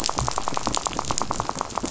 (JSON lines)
{"label": "biophony, rattle", "recorder": "SoundTrap 500"}